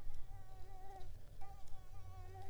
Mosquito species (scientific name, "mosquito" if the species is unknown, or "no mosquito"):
mosquito